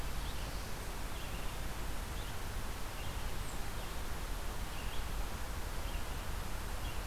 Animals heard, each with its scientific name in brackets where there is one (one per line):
Red-eyed Vireo (Vireo olivaceus)